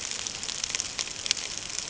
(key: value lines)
label: ambient
recorder: HydroMoth